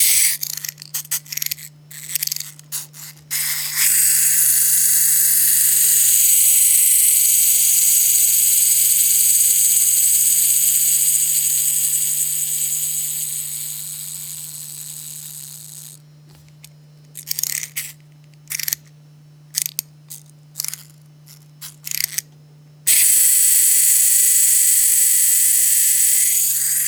Did the wind-up toy fail to work?
no